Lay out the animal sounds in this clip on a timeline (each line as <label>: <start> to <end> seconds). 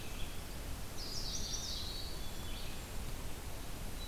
Black-capped Chickadee (Poecile atricapillus): 0.0 to 0.6 seconds
Red-eyed Vireo (Vireo olivaceus): 0.0 to 4.1 seconds
Chestnut-sided Warbler (Setophaga pensylvanica): 0.7 to 2.1 seconds
Eastern Wood-Pewee (Contopus virens): 0.9 to 2.2 seconds
Black-capped Chickadee (Poecile atricapillus): 1.7 to 2.6 seconds